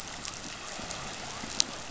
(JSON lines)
{"label": "biophony", "recorder": "SoundTrap 500"}